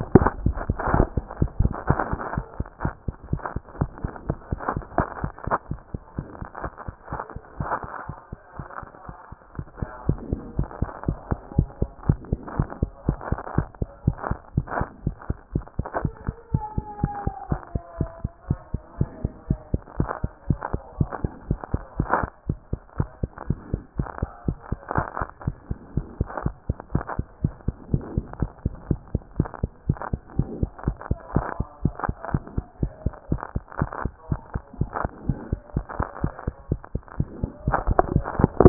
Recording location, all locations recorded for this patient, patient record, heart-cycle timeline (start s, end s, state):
mitral valve (MV)
aortic valve (AV)+mitral valve (MV)
#Age: Child
#Sex: Male
#Height: 109.0 cm
#Weight: 19.1 kg
#Pregnancy status: False
#Murmur: Absent
#Murmur locations: nan
#Most audible location: nan
#Systolic murmur timing: nan
#Systolic murmur shape: nan
#Systolic murmur grading: nan
#Systolic murmur pitch: nan
#Systolic murmur quality: nan
#Diastolic murmur timing: nan
#Diastolic murmur shape: nan
#Diastolic murmur grading: nan
#Diastolic murmur pitch: nan
#Diastolic murmur quality: nan
#Outcome: Normal
#Campaign: 2014 screening campaign
0.00	0.12	systole
0.12	0.30	S2
0.30	0.40	diastole
0.40	0.56	S1
0.56	0.68	systole
0.68	0.78	S2
0.78	0.90	diastole
0.90	1.08	S1
1.08	1.16	systole
1.16	1.26	S2
1.26	1.40	diastole
1.40	1.50	S1
1.50	1.58	systole
1.58	1.72	S2
1.72	1.88	diastole
1.88	2.00	S1
2.00	2.10	systole
2.10	2.20	S2
2.20	2.36	diastole
2.36	2.46	S1
2.46	2.58	systole
2.58	2.68	S2
2.68	2.84	diastole
2.84	2.94	S1
2.94	3.06	systole
3.06	3.14	S2
3.14	3.30	diastole
3.30	3.42	S1
3.42	3.54	systole
3.54	3.62	S2
3.62	3.78	diastole
3.78	3.90	S1
3.90	4.02	systole
4.02	4.12	S2
4.12	4.28	diastole
4.28	4.38	S1
4.38	4.50	systole
4.50	4.60	S2
4.60	4.74	diastole
4.74	4.84	S1
4.84	4.96	systole
4.96	5.06	S2
5.06	5.22	diastole
5.22	5.34	S1
5.34	5.48	systole
5.48	5.58	S2
5.58	5.72	diastole
5.72	5.82	S1
5.82	5.94	systole
5.94	6.02	S2
6.02	6.18	diastole
6.18	6.28	S1
6.28	6.40	systole
6.40	6.48	S2
6.48	6.64	diastole
6.64	6.74	S1
6.74	6.86	systole
6.86	6.96	S2
6.96	7.12	diastole
7.12	7.22	S1
7.22	7.34	systole
7.34	7.42	S2
7.42	7.58	diastole
7.58	7.70	S1
7.70	7.82	systole
7.82	7.92	S2
7.92	8.08	diastole
8.08	8.18	S1
8.18	8.32	systole
8.32	8.42	S2
8.42	8.58	diastole
8.58	8.68	S1
8.68	8.82	systole
8.82	8.92	S2
8.92	9.08	diastole
9.08	9.18	S1
9.18	9.32	systole
9.32	9.42	S2
9.42	9.58	diastole
9.58	9.68	S1
9.68	9.80	systole
9.80	9.90	S2
9.90	10.06	diastole
10.06	10.20	S1
10.20	10.30	systole
10.30	10.40	S2
10.40	10.56	diastole
10.56	10.68	S1
10.68	10.80	systole
10.80	10.90	S2
10.90	11.06	diastole
11.06	11.18	S1
11.18	11.30	systole
11.30	11.40	S2
11.40	11.56	diastole
11.56	11.70	S1
11.70	11.80	systole
11.80	11.90	S2
11.90	12.06	diastole
12.06	12.20	S1
12.20	12.30	systole
12.30	12.40	S2
12.40	12.56	diastole
12.56	12.68	S1
12.68	12.80	systole
12.80	12.90	S2
12.90	13.06	diastole
13.06	13.18	S1
13.18	13.30	systole
13.30	13.40	S2
13.40	13.56	diastole
13.56	13.68	S1
13.68	13.80	systole
13.80	13.90	S2
13.90	14.06	diastole
14.06	14.18	S1
14.18	14.28	systole
14.28	14.38	S2
14.38	14.56	diastole
14.56	14.68	S1
14.68	14.78	systole
14.78	14.88	S2
14.88	15.04	diastole
15.04	15.16	S1
15.16	15.28	systole
15.28	15.38	S2
15.38	15.54	diastole
15.54	15.66	S1
15.66	15.78	systole
15.78	15.86	S2
15.86	16.02	diastole
16.02	16.14	S1
16.14	16.26	systole
16.26	16.36	S2
16.36	16.52	diastole
16.52	16.64	S1
16.64	16.76	systole
16.76	16.86	S2
16.86	17.02	diastole
17.02	17.12	S1
17.12	17.24	systole
17.24	17.34	S2
17.34	17.50	diastole
17.50	17.60	S1
17.60	17.72	systole
17.72	17.82	S2
17.82	17.98	diastole
17.98	18.10	S1
18.10	18.22	systole
18.22	18.32	S2
18.32	18.48	diastole
18.48	18.60	S1
18.60	18.72	systole
18.72	18.82	S2
18.82	18.98	diastole
18.98	19.10	S1
19.10	19.22	systole
19.22	19.32	S2
19.32	19.48	diastole
19.48	19.60	S1
19.60	19.72	systole
19.72	19.82	S2
19.82	19.98	diastole
19.98	20.10	S1
20.10	20.22	systole
20.22	20.32	S2
20.32	20.48	diastole
20.48	20.60	S1
20.60	20.72	systole
20.72	20.82	S2
20.82	20.98	diastole
20.98	21.10	S1
21.10	21.22	systole
21.22	21.32	S2
21.32	21.48	diastole
21.48	21.60	S1
21.60	21.72	systole
21.72	21.82	S2
21.82	21.98	diastole
21.98	22.10	S1
22.10	22.22	systole
22.22	22.32	S2
22.32	22.48	diastole
22.48	22.60	S1
22.60	22.72	systole
22.72	22.82	S2
22.82	22.98	diastole
22.98	23.10	S1
23.10	23.22	systole
23.22	23.32	S2
23.32	23.48	diastole
23.48	23.60	S1
23.60	23.72	systole
23.72	23.82	S2
23.82	23.98	diastole
23.98	24.08	S1
24.08	24.20	systole
24.20	24.30	S2
24.30	24.46	diastole
24.46	24.58	S1
24.58	24.70	systole
24.70	24.80	S2
24.80	24.96	diastole
24.96	25.08	S1
25.08	25.20	systole
25.20	25.30	S2
25.30	25.46	diastole
25.46	25.56	S1
25.56	25.68	systole
25.68	25.78	S2
25.78	25.94	diastole
25.94	26.06	S1
26.06	26.18	systole
26.18	26.28	S2
26.28	26.44	diastole
26.44	26.54	S1
26.54	26.66	systole
26.66	26.76	S2
26.76	26.92	diastole
26.92	27.04	S1
27.04	27.16	systole
27.16	27.26	S2
27.26	27.42	diastole
27.42	27.54	S1
27.54	27.66	systole
27.66	27.76	S2
27.76	27.92	diastole
27.92	28.06	S1
28.06	28.16	systole
28.16	28.26	S2
28.26	28.40	diastole
28.40	28.52	S1
28.52	28.64	systole
28.64	28.74	S2
28.74	28.88	diastole
28.88	29.00	S1
29.00	29.12	systole
29.12	29.22	S2
29.22	29.38	diastole
29.38	29.50	S1
29.50	29.62	systole
29.62	29.72	S2
29.72	29.88	diastole
29.88	29.98	S1
29.98	30.10	systole
30.10	30.20	S2
30.20	30.36	diastole
30.36	30.48	S1
30.48	30.60	systole
30.60	30.70	S2
30.70	30.86	diastole
30.86	30.96	S1
30.96	31.08	systole
31.08	31.18	S2
31.18	31.34	diastole
31.34	31.46	S1
31.46	31.58	systole
31.58	31.68	S2
31.68	31.84	diastole
31.84	31.94	S1
31.94	32.06	systole
32.06	32.16	S2
32.16	32.32	diastole
32.32	32.44	S1
32.44	32.56	systole
32.56	32.66	S2
32.66	32.82	diastole
32.82	32.92	S1
32.92	33.04	systole
33.04	33.14	S2
33.14	33.30	diastole
33.30	33.42	S1
33.42	33.54	systole
33.54	33.64	S2
33.64	33.80	diastole
33.80	33.90	S1
33.90	34.02	systole
34.02	34.12	S2
34.12	34.30	diastole
34.30	34.40	S1
34.40	34.52	systole
34.52	34.62	S2
34.62	34.78	diastole
34.78	34.90	S1
34.90	35.02	systole
35.02	35.12	S2
35.12	35.26	diastole
35.26	35.38	S1
35.38	35.50	systole
35.50	35.60	S2
35.60	35.76	diastole
35.76	35.86	S1
35.86	35.98	systole
35.98	36.08	S2
36.08	36.22	diastole
36.22	36.32	S1
36.32	36.44	systole
36.44	36.54	S2
36.54	36.70	diastole
36.70	36.80	S1
36.80	36.92	systole
36.92	37.02	S2
37.02	37.18	diastole
37.18	37.28	S1
37.28	37.40	systole
37.40	37.50	S2
37.50	37.66	diastole
37.66	37.80	S1
37.80	37.88	systole
37.88	37.98	S2
37.98	38.12	diastole
38.12	38.26	S1
38.26	38.38	systole
38.38	38.50	S2
38.50	38.60	diastole
38.60	38.69	S1